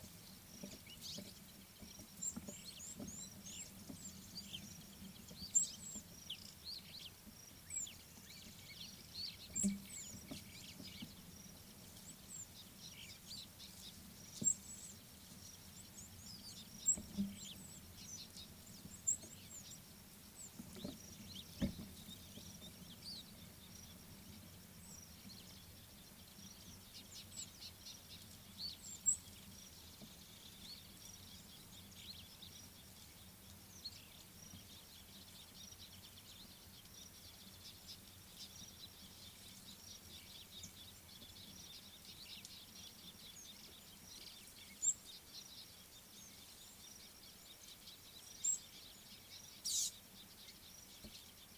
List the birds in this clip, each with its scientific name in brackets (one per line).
Scarlet-chested Sunbird (Chalcomitra senegalensis)
Superb Starling (Lamprotornis superbus)
Red-cheeked Cordonbleu (Uraeginthus bengalus)